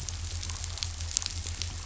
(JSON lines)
{"label": "anthrophony, boat engine", "recorder": "SoundTrap 500"}